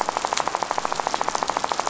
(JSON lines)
{"label": "biophony, rattle", "recorder": "SoundTrap 500"}